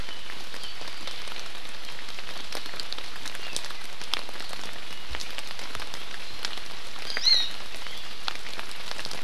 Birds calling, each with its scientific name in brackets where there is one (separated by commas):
Hawaii Amakihi (Chlorodrepanis virens)